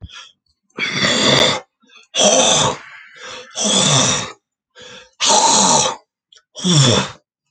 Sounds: Throat clearing